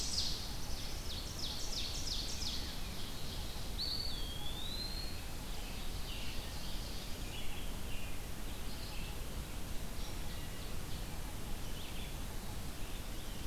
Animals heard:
Eastern Wood-Pewee (Contopus virens), Ovenbird (Seiurus aurocapilla), Red-eyed Vireo (Vireo olivaceus)

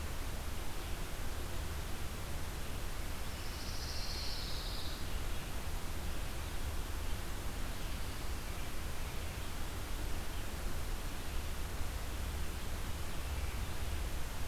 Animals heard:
Pine Warbler (Setophaga pinus)

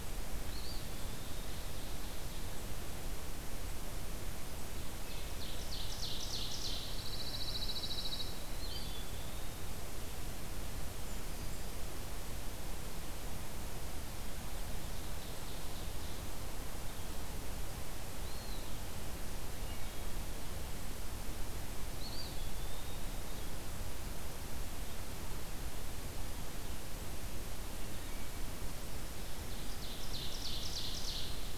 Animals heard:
Pine Warbler (Setophaga pinus), Eastern Wood-Pewee (Contopus virens), Ovenbird (Seiurus aurocapilla), Wood Thrush (Hylocichla mustelina)

